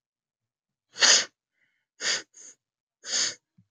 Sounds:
Sniff